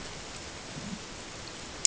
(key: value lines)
label: ambient
recorder: HydroMoth